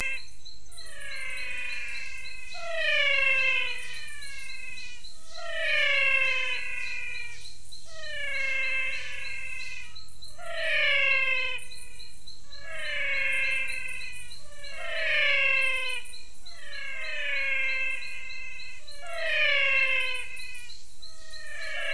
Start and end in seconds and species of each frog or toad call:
0.0	21.9	Adenomera diptyx
0.8	21.9	Physalaemus albonotatus
Cerrado, 6:30pm

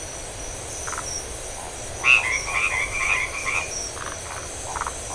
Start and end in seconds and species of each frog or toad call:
0.7	1.1	Phyllomedusa distincta
1.9	3.7	Boana albomarginata
3.9	5.0	Phyllomedusa distincta
Atlantic Forest, ~11pm

